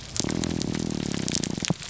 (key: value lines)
label: biophony, grouper groan
recorder: SoundTrap 300